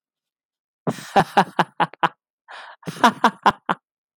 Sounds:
Laughter